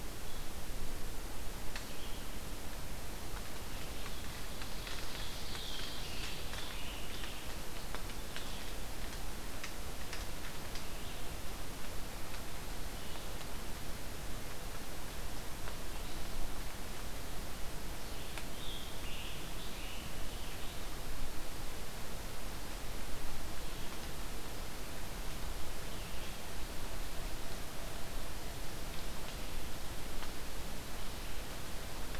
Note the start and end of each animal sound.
[0.00, 18.37] Red-eyed Vireo (Vireo olivaceus)
[4.56, 6.54] Ovenbird (Seiurus aurocapilla)
[5.42, 7.63] Scarlet Tanager (Piranga olivacea)
[18.45, 20.85] Scarlet Tanager (Piranga olivacea)
[21.14, 32.20] Red-eyed Vireo (Vireo olivaceus)
[27.67, 29.37] Ovenbird (Seiurus aurocapilla)

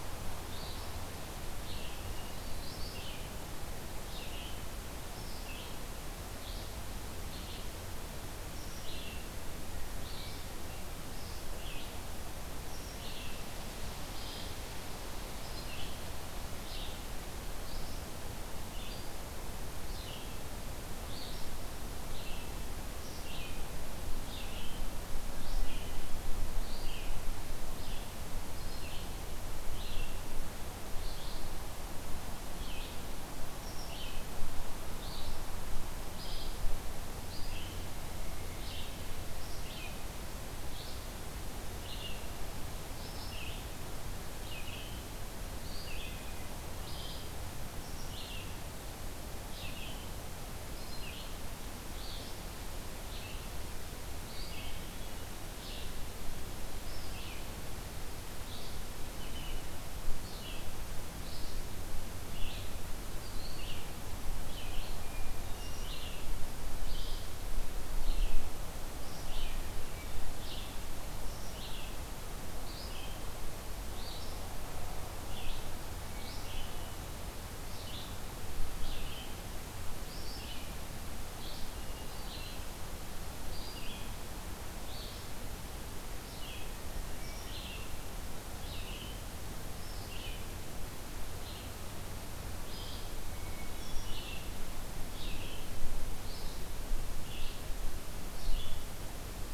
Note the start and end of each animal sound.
[0.37, 59.69] Red-eyed Vireo (Vireo olivaceus)
[1.97, 2.84] Hermit Thrush (Catharus guttatus)
[45.79, 46.49] Hermit Thrush (Catharus guttatus)
[60.11, 99.54] Red-eyed Vireo (Vireo olivaceus)
[64.86, 65.91] Hermit Thrush (Catharus guttatus)
[76.07, 77.05] Hermit Thrush (Catharus guttatus)
[81.75, 82.59] Hermit Thrush (Catharus guttatus)
[93.13, 94.37] Hermit Thrush (Catharus guttatus)

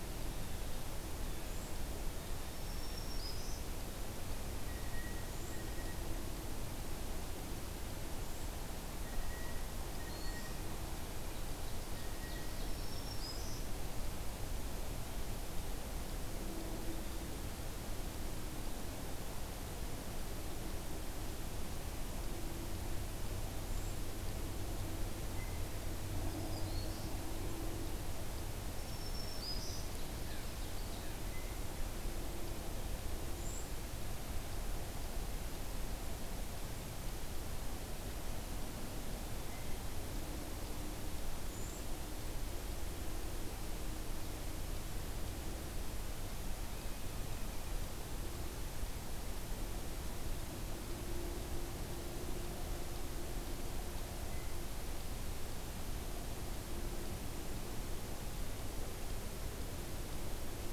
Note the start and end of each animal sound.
[1.40, 1.80] Cedar Waxwing (Bombycilla cedrorum)
[2.46, 3.65] Black-throated Green Warbler (Setophaga virens)
[4.59, 6.00] Blue Jay (Cyanocitta cristata)
[5.14, 5.78] Cedar Waxwing (Bombycilla cedrorum)
[8.07, 8.56] Cedar Waxwing (Bombycilla cedrorum)
[8.95, 12.71] Blue Jay (Cyanocitta cristata)
[9.73, 10.61] Black-throated Green Warbler (Setophaga virens)
[11.43, 13.02] Ovenbird (Seiurus aurocapilla)
[12.66, 13.69] Black-throated Green Warbler (Setophaga virens)
[13.01, 13.44] Cedar Waxwing (Bombycilla cedrorum)
[23.54, 23.96] Cedar Waxwing (Bombycilla cedrorum)
[25.27, 25.74] Blue Jay (Cyanocitta cristata)
[26.23, 27.16] Black-throated Green Warbler (Setophaga virens)
[28.79, 30.04] Black-throated Green Warbler (Setophaga virens)
[29.74, 31.11] Ovenbird (Seiurus aurocapilla)
[30.18, 31.72] Blue Jay (Cyanocitta cristata)
[33.26, 33.75] Cedar Waxwing (Bombycilla cedrorum)
[41.38, 41.94] Cedar Waxwing (Bombycilla cedrorum)
[46.68, 47.81] Blue Jay (Cyanocitta cristata)

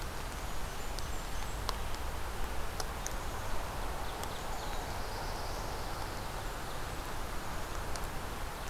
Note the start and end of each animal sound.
[0.10, 1.83] Blackburnian Warbler (Setophaga fusca)
[4.33, 5.83] Black-throated Blue Warbler (Setophaga caerulescens)
[6.02, 7.98] Blackburnian Warbler (Setophaga fusca)

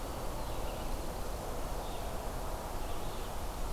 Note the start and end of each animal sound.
[0.00, 3.72] Red-eyed Vireo (Vireo olivaceus)
[0.33, 1.62] Black-throated Blue Warbler (Setophaga caerulescens)

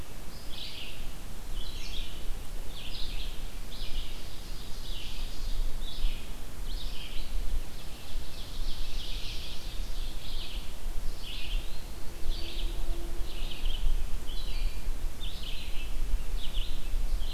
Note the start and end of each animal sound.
[0.00, 17.33] Red-eyed Vireo (Vireo olivaceus)
[3.67, 5.89] Ovenbird (Seiurus aurocapilla)
[7.66, 10.00] Ovenbird (Seiurus aurocapilla)
[11.16, 11.92] Eastern Wood-Pewee (Contopus virens)

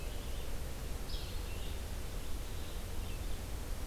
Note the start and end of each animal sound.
[0.00, 3.87] Blue-headed Vireo (Vireo solitarius)
[1.01, 1.30] Yellow-bellied Flycatcher (Empidonax flaviventris)

